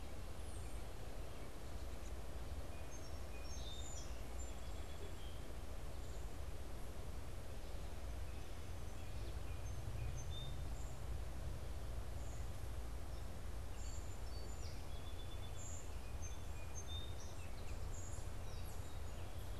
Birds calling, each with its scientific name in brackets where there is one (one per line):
Song Sparrow (Melospiza melodia)
unidentified bird